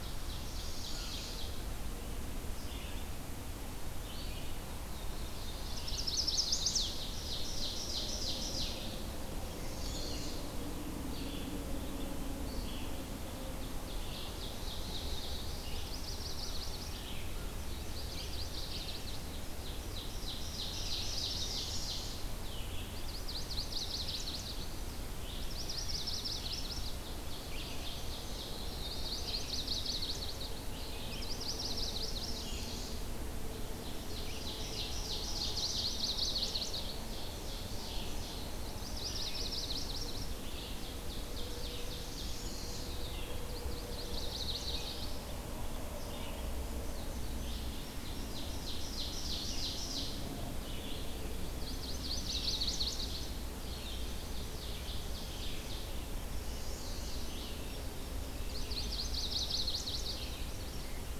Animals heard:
Red-eyed Vireo (Vireo olivaceus), Black-throated Blue Warbler (Setophaga caerulescens), Northern Parula (Setophaga americana), Wood Thrush (Hylocichla mustelina), Chestnut-sided Warbler (Setophaga pensylvanica), Ovenbird (Seiurus aurocapilla), American Crow (Corvus brachyrhynchos)

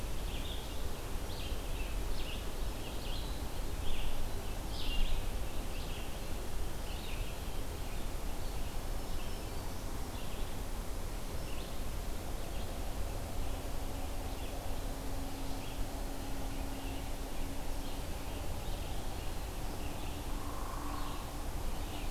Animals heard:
Black-throated Green Warbler (Setophaga virens), Red-eyed Vireo (Vireo olivaceus), Hairy Woodpecker (Dryobates villosus)

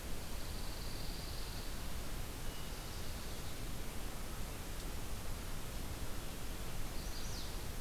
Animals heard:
Chestnut-sided Warbler (Setophaga pensylvanica), Pine Warbler (Setophaga pinus)

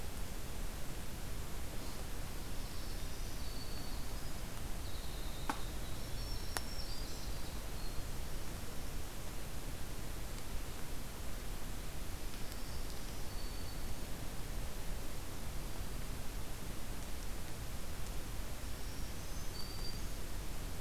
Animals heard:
Winter Wren (Troglodytes hiemalis), Black-throated Green Warbler (Setophaga virens)

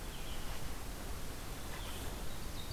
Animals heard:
Red-eyed Vireo (Vireo olivaceus)

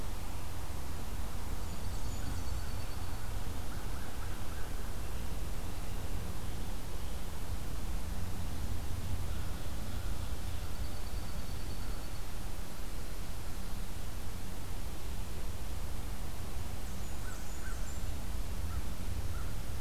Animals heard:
Ovenbird (Seiurus aurocapilla), American Crow (Corvus brachyrhynchos), Blackburnian Warbler (Setophaga fusca), Dark-eyed Junco (Junco hyemalis)

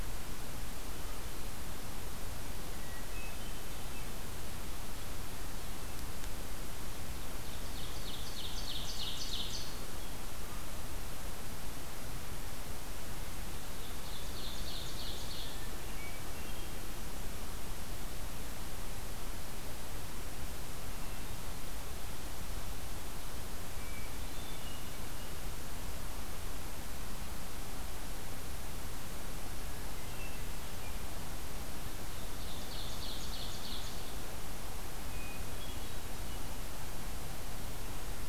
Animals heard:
Hermit Thrush (Catharus guttatus), Ovenbird (Seiurus aurocapilla)

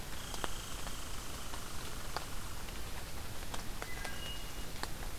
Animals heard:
Wood Thrush (Hylocichla mustelina), Red Squirrel (Tamiasciurus hudsonicus)

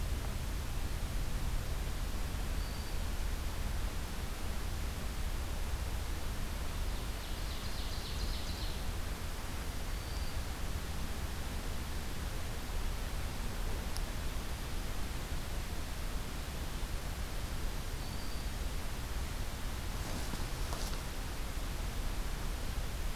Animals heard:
Black-throated Green Warbler (Setophaga virens), Ovenbird (Seiurus aurocapilla)

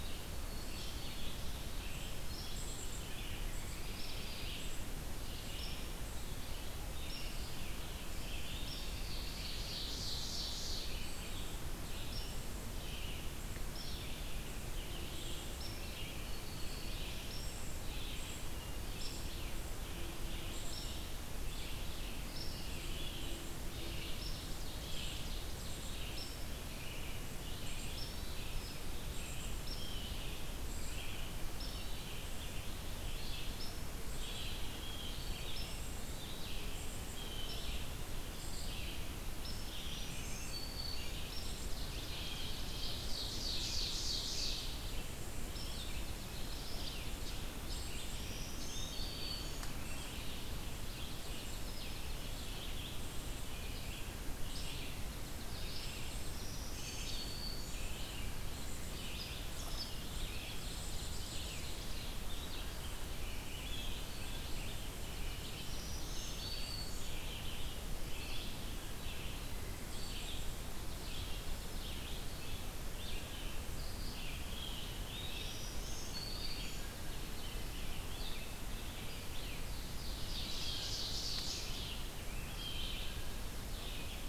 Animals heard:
Ovenbird (Seiurus aurocapilla), Blue Jay (Cyanocitta cristata), Dark-eyed Junco (Junco hyemalis), Black-throated Green Warbler (Setophaga virens), American Robin (Turdus migratorius), unidentified call, Red-eyed Vireo (Vireo olivaceus)

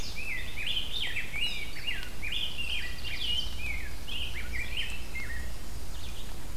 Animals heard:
Rose-breasted Grosbeak (Pheucticus ludovicianus), Chestnut-sided Warbler (Setophaga pensylvanica), Red-eyed Vireo (Vireo olivaceus)

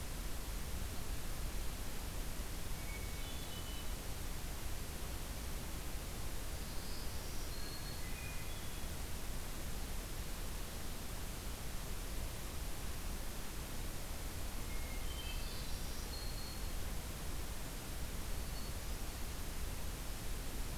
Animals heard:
Hermit Thrush (Catharus guttatus), Black-throated Green Warbler (Setophaga virens)

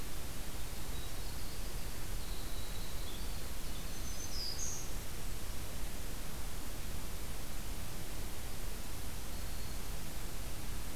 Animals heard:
Winter Wren (Troglodytes hiemalis), Black-throated Green Warbler (Setophaga virens)

